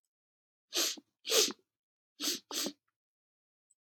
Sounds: Sniff